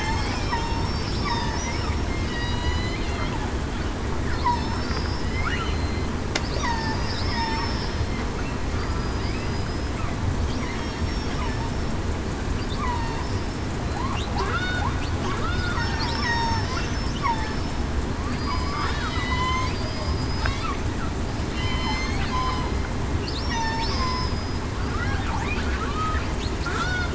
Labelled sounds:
0.0	1.4	killer whale, southern resident, 2.1 to 5.5 kHz
2.3	3.0	killer whale, southern resident, 1.9 to 4.1 kHz
4.5	5.2	killer whale, southern resident, 5.2 to 5.4 kHz
5.5	6.0	killer whale, southern resident, 4.1 to 4.2 kHz
6.5	7.5	killer whale, southern resident, 0.84 to 5.5 kHz
12.8	13.2	killer whale, southern resident, 0.89 to 1.0 kHz
14.5	14.8	killer whale, southern resident, 1.3 to 1.5 kHz
15.4	16.7	killer whale, southern resident, 0.84 to 6.4 kHz
17.2	17.5	killer whale, southern resident, 0.84 to 1.2 kHz
18.3	19.4	killer whale, southern resident, 3.7 to 8.0 kHz
19.7	20.1	killer whale, southern resident, 4.7 to 5.2 kHz
21.5	22.0	killer whale, southern resident, 0.84 to 3.1 kHz
22.3	22.7	killer whale, southern resident, 0.96 to 1.1 kHz
23.5	24.3	killer whale, southern resident, 0.87 to 1.1 kHz
26.7	27.1	killer whale, southern resident, 1.3 to 1.5 kHz

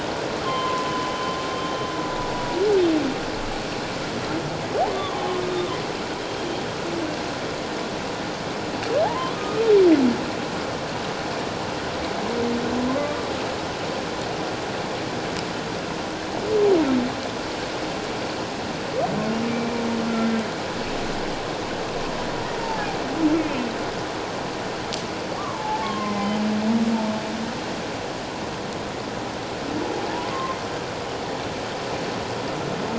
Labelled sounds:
0.4	1.4	humpback whale, 0.97 to 3.2 kHz
2.3	2.6	humpback whale, 0.91 to 1.0 kHz
4.9	5.3	humpback whale, 0.97 to 1.2 kHz
9.0	9.6	humpback whale, 0.78 to 1.3 kHz
12.9	13.2	humpback whale, 0.94 to 1.2 kHz
19.5	19.8	humpback whale, 2.3 to 2.4 kHz
22.6	22.9	humpback whale, 0.81 to 0.94 kHz
25.4	26.4	humpback whale, 0.81 to 2.1 kHz
29.8	30.6	humpback whale, 0.78 to 1.1 kHz

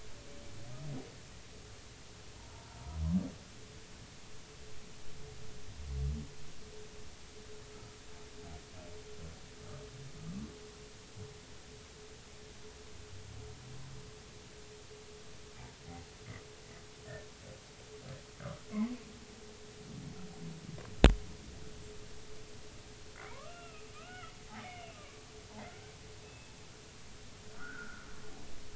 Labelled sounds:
2.4	2.8	humpback whale, 0.83 to 1.0 kHz
18.4	18.6	humpback whale, 0.99 to 1.6 kHz
23.3	25.0	humpback whale, 0.80 to 3.1 kHz
26.2	26.5	humpback whale, 2.5 to 2.7 kHz
27.5	28.1	humpback whale, 1.2 to 1.7 kHz

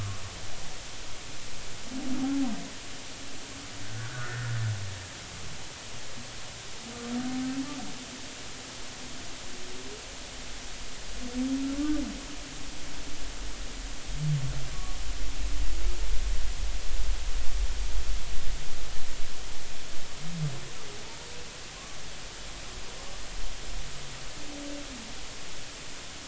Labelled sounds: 2.2	2.5	humpback whale, 0.80 to 0.90 kHz
3.9	4.5	humpback whale, 1.1 to 1.9 kHz
14.7	15.0	humpback whale, 1.0 to 1.2 kHz
21.0	21.3	humpback whale, 0.86 to 0.99 kHz

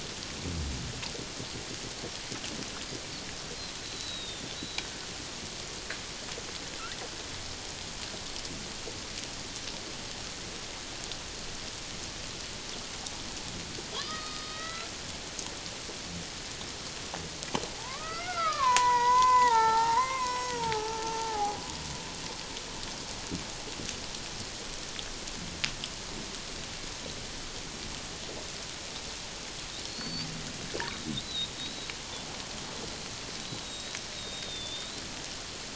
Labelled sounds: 3.8	4.9	killer whale, Bigg's (transient), 3.5 to 4.1 kHz
13.9	14.9	killer whale, Bigg's (transient), 0.91 to 5.0 kHz
17.7	21.6	killer whale, Bigg's (transient), 0.78 to 6.6 kHz
29.8	30.3	killer whale, Bigg's (transient), 4.2 to 4.8 kHz
31.2	31.9	killer whale, Bigg's (transient), 3.6 to 4.1 kHz
33.6	35.0	killer whale, Bigg's (transient), 3.4 to 7.6 kHz

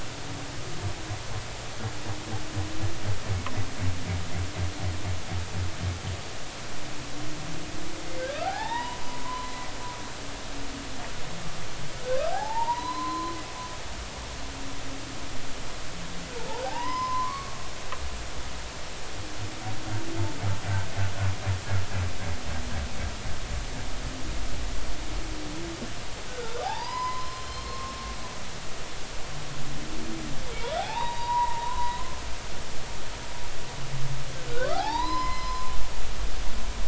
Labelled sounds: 8.3	9.7	humpback whale, 0.80 to 4.0 kHz
12.0	13.4	humpback whale, 0.80 to 4.2 kHz
16.6	17.6	humpback whale, 0.80 to 5.2 kHz
26.3	28.0	humpback whale, 0.80 to 5.4 kHz
30.5	32.0	humpback whale, 0.80 to 4.0 kHz
34.5	35.7	humpback whale, 0.80 to 5.2 kHz

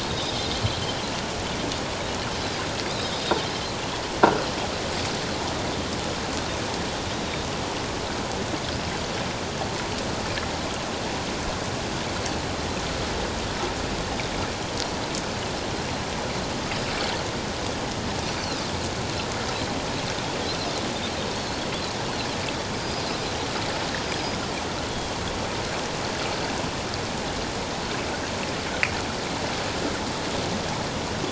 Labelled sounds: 0.1	0.3	Pacific white-sided dolphin, 3.6 to 3.8 kHz
2.9	3.1	Pacific white-sided dolphin, 3.5 to 3.8 kHz
7.1	7.5	Pacific white-sided dolphin, 3.6 to 3.9 kHz
21.3	21.7	Pacific white-sided dolphin, 4.2 to 4.5 kHz
22.8	23.1	Pacific white-sided dolphin, 4.8 to 5.1 kHz
24.9	25.1	Pacific white-sided dolphin, 3.1 to 3.4 kHz

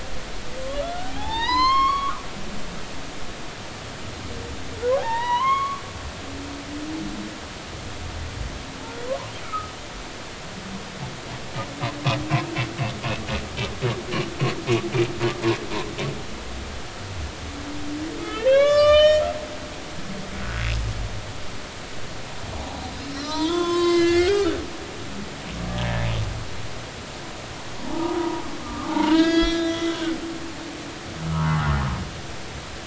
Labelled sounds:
0.8	2.2	humpback whale, 0.80 to 6.5 kHz
5.0	5.8	humpback whale, 0.80 to 4.2 kHz
9.4	9.7	humpback whale, 1.2 to 1.4 kHz
18.2	19.2	humpback whale, 1.0 to 7.1 kHz
20.3	20.7	humpback whale, 1.4 to 1.6 kHz
22.6	22.8	humpback whale, 0.80 to 1.0 kHz
23.2	24.6	humpback whale, 0.86 to 6.3 kHz
27.8	30.2	humpback whale, 0.83 to 7.1 kHz
31.3	31.7	humpback whale, 0.80 to 1.5 kHz

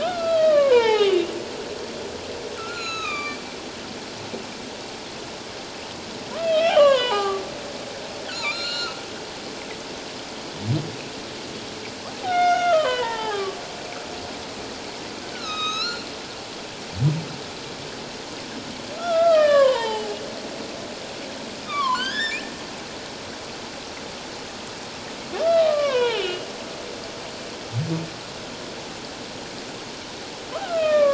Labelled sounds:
0.0	1.2	humpback whale, 0.78 to 4.0 kHz
2.6	3.4	humpback whale, 1.1 to 7.2 kHz
6.4	7.4	humpback whale, 0.78 to 8.0 kHz
8.3	9.0	humpback whale, 1.1 to 7.3 kHz
12.3	13.6	humpback whale, 0.78 to 3.8 kHz
15.3	16.0	humpback whale, 1.2 to 6.6 kHz
19.0	20.2	humpback whale, 0.78 to 3.8 kHz
21.6	22.5	humpback whale, 0.94 to 5.2 kHz
25.3	26.5	humpback whale, 0.81 to 4.2 kHz
30.7	31.0	humpback whale, 3.0 to 3.3 kHz

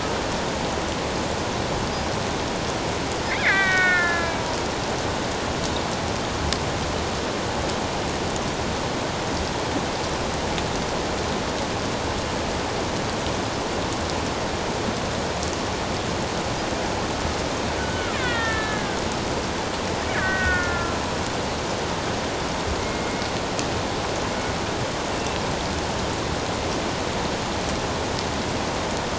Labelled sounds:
3.3	4.4	killer whale, Bigg's (transient), 1.1 to 3.9 kHz
17.8	19.0	killer whale, Bigg's (transient), 1.2 to 3.8 kHz
20.1	21.0	killer whale, Bigg's (transient), 1.3 to 2.3 kHz
22.8	23.3	killer whale, Bigg's (transient), 1.9 to 2.2 kHz
25.1	25.4	killer whale, Bigg's (transient), 2.6 to 2.8 kHz

